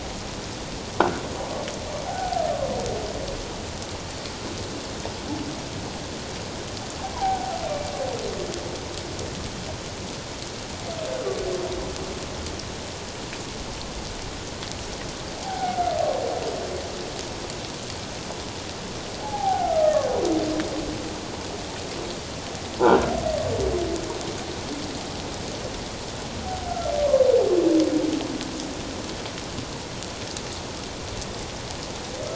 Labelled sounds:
2.1	2.4	humpback whale, 0.78 to 0.84 kHz
7.1	7.6	humpback whale, 0.78 to 1.6 kHz
15.4	15.8	humpback whale, 0.78 to 0.88 kHz
19.2	19.9	humpback whale, 0.78 to 1.5 kHz
22.8	23.1	croaking sound likely from a nearby submerged object, 1.3 to 1.7 kHz
27.0	27.2	humpback whale, 1.0 to 1.2 kHz

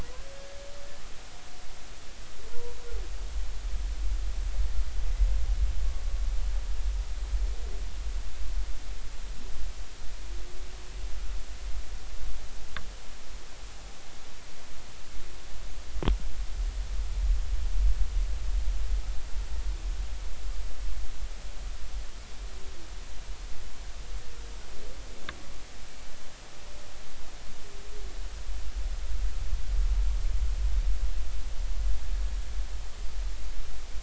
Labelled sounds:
2.5	2.8	humpback whale, 0.90 to 1.0 kHz

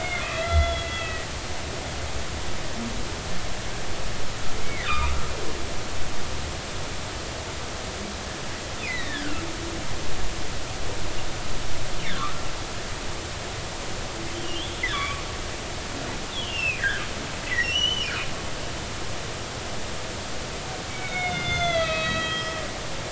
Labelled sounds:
0.0	1.3	humpback whale, 1.3 to 3.6 kHz
4.6	5.1	humpback whale, 1.1 to 3.8 kHz
8.8	9.4	humpback whale, 1.2 to 4.1 kHz
12.0	12.3	humpback whale, 1.0 to 2.4 kHz
14.9	15.3	humpback whale, 1.0 to 3.8 kHz
16.3	17.0	humpback whale, 1.3 to 3.7 kHz
17.4	18.1	humpback whale, 1.8 to 6.1 kHz
20.9	22.6	humpback whale, 1.2 to 6.5 kHz

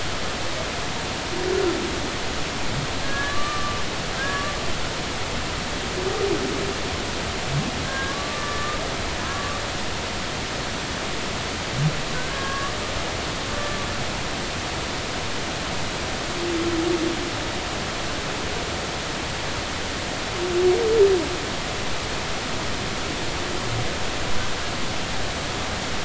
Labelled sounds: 3.0	3.8	humpback whale, 1.1 to 3.1 kHz
4.2	4.7	humpback whale, 1.1 to 1.8 kHz
7.8	8.8	humpback whale, 1.0 to 1.8 kHz
9.2	9.6	humpback whale, 0.96 to 1.2 kHz
12.3	13.9	humpback whale, 1.1 to 1.8 kHz

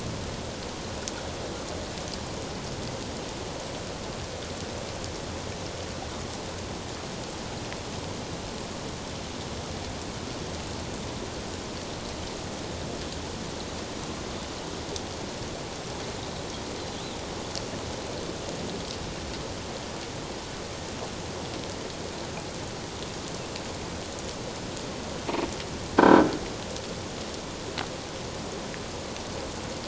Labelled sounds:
26.0	26.3	croaking sound likely from a nearby submerged object, 1.5 to 1.6 kHz

